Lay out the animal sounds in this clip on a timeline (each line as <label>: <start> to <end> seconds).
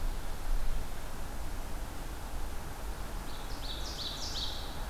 Ovenbird (Seiurus aurocapilla): 3.0 to 4.9 seconds